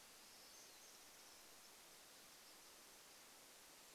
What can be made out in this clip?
warbler song, Pine Siskin call